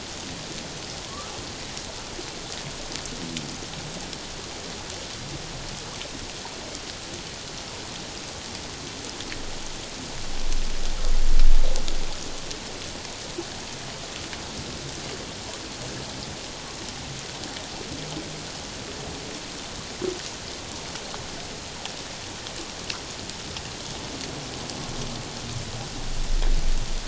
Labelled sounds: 1.0	1.3	humpback whale, 0.97 to 1.4 kHz

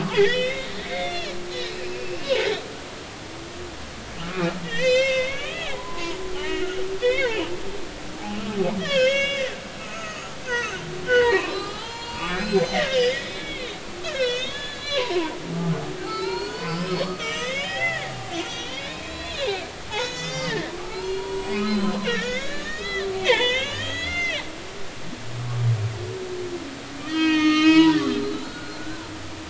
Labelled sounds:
0.1	2.4	humpback whale, 1.5 to 5.7 kHz
4.3	7.4	humpback whale, 0.90 to 7.6 kHz
8.8	9.5	humpback whale, 1.5 to 6.2 kHz
9.8	15.3	humpback whale, 0.80 to 7.4 kHz
16.0	19.6	humpback whale, 0.80 to 7.0 kHz
19.9	24.4	humpback whale, 0.80 to 6.8 kHz
27.0	29.1	humpback whale, 0.86 to 6.8 kHz

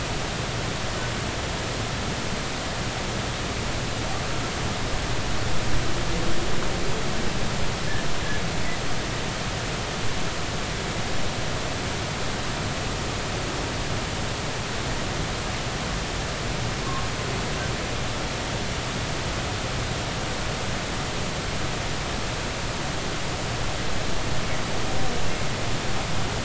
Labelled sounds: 17.8	18.1	humpback whale, 1.0 to 1.2 kHz

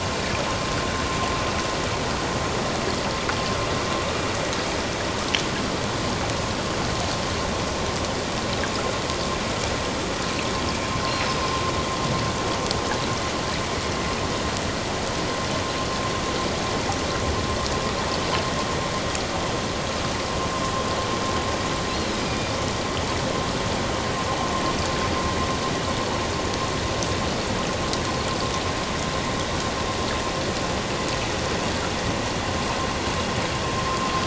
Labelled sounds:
11.3	11.6	killer whale, northern resident, A clan, AA subclan, 4.8 to 5.1 kHz
21.9	22.5	killer whale, northern resident, A clan, AA subclan, 2.4 to 5.0 kHz

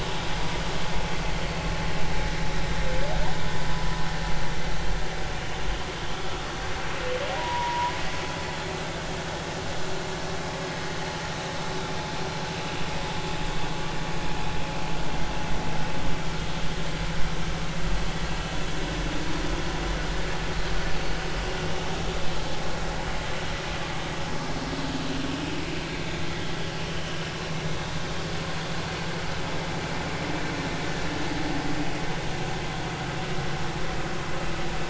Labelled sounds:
7.4	7.9	humpback whale, 0.90 to 1.0 kHz

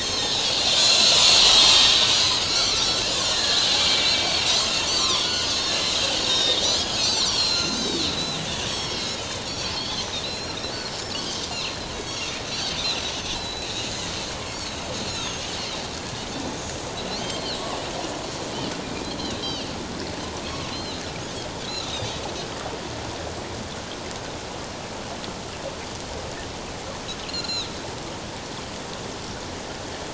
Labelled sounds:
0.0	0.9	Pacific white-sided dolphin, 3.3 to 4.4 kHz
1.4	4.2	Pacific white-sided dolphin, 1.6 to 7.3 kHz
4.9	5.6	Pacific white-sided dolphin, 0.97 to 6.9 kHz
6.2	11.4	Pacific white-sided dolphin, 1.8 to 7.8 kHz
11.9	13.0	Pacific white-sided dolphin, 2.1 to 6.8 kHz
13.3	13.7	Pacific white-sided dolphin, 3.9 to 4.1 kHz
15.1	15.5	Pacific white-sided dolphin, 3.0 to 7.0 kHz
17.1	17.4	Pacific white-sided dolphin, 3.9 to 4.8 kHz
19.0	19.7	Pacific white-sided dolphin, 2.6 to 4.8 kHz
20.7	21.0	Pacific white-sided dolphin, 3.7 to 4.3 kHz
21.8	22.3	Pacific white-sided dolphin, 3.0 to 4.9 kHz
27.3	27.7	Pacific white-sided dolphin, 2.5 to 7.1 kHz

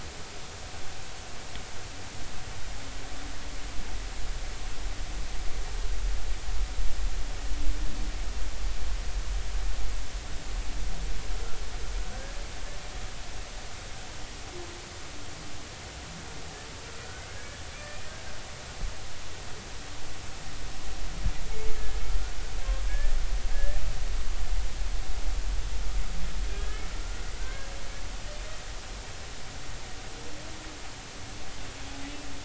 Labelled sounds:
17.3	17.6	humpback whale, 1.6 to 1.8 kHz
22.8	23.8	humpback whale, 1.6 to 1.9 kHz
26.5	27.7	humpback whale, 1.4 to 1.8 kHz

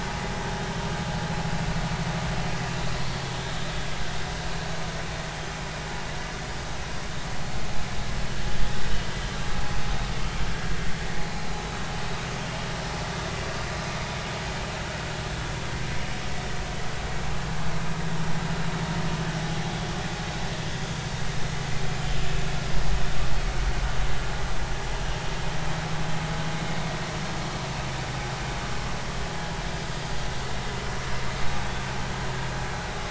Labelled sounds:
29.7	30.0	vessel noise, 4.7 to 4.9 kHz

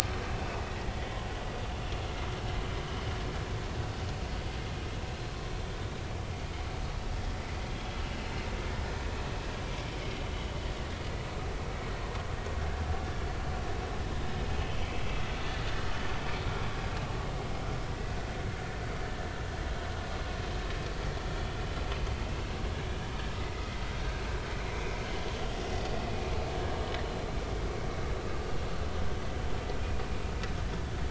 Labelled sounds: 23.5	23.8	vessel noise, 2.0 to 2.1 kHz
24.7	25.0	vessel noise, 2.2 to 2.4 kHz
27.9	28.3	vessel noise, 3.8 to 4.2 kHz

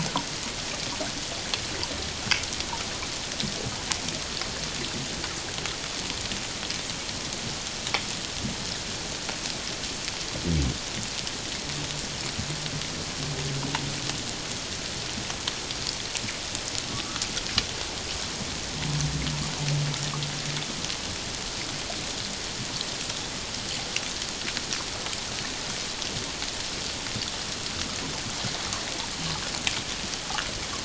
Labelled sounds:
16.9	17.2	humpback whale, 1.1 to 1.4 kHz

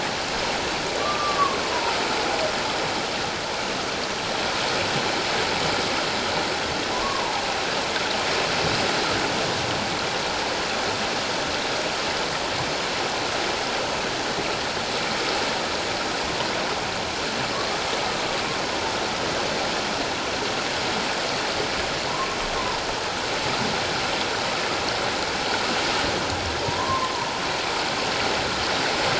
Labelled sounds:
1.0	1.6	humpback whale, 1.0 to 1.4 kHz
6.9	7.4	humpback whale, 0.78 to 1.2 kHz
26.6	27.3	humpback whale, 0.88 to 1.2 kHz

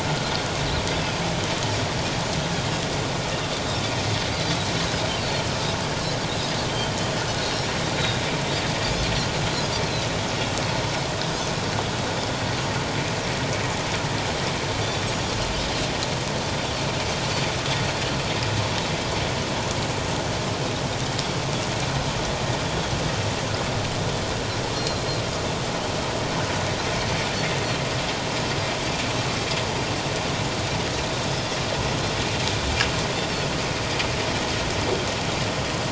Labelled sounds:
7.4	8.2	Pacific white-sided dolphin, 3.6 to 4.3 kHz
24.8	25.0	Pacific white-sided dolphin, 4.0 to 4.3 kHz

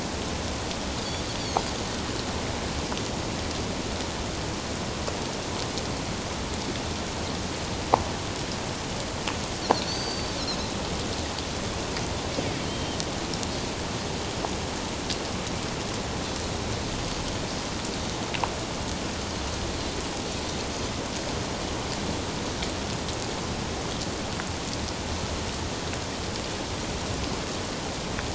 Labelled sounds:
9.8	10.3	Pacific white-sided dolphin, 4.3 to 6.2 kHz
12.7	13.0	Pacific white-sided dolphin, 3.0 to 3.2 kHz
20.3	20.6	Pacific white-sided dolphin, 3.7 to 4.2 kHz

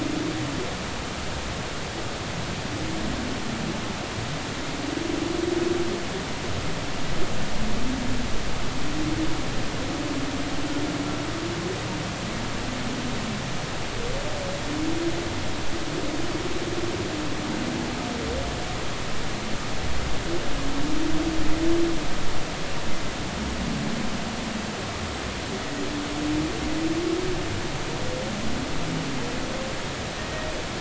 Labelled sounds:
30.2	30.5	humpback whale, 1.8 to 1.9 kHz

